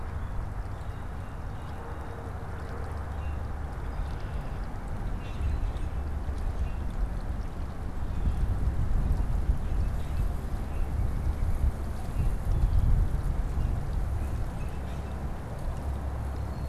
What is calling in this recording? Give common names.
Blue Jay, Common Grackle